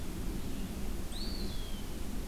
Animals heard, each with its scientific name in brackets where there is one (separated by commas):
Eastern Wood-Pewee (Contopus virens)